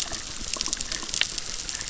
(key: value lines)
label: biophony, chorus
recorder: SoundTrap 600